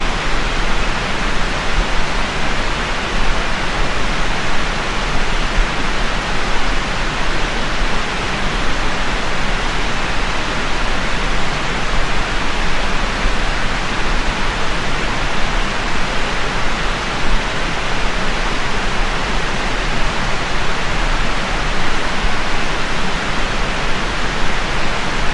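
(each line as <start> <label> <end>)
0.0 Loud, continuous sound of rushing water. 25.3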